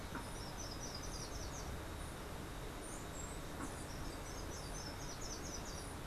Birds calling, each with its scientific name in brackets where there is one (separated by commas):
Slate-throated Redstart (Myioborus miniatus)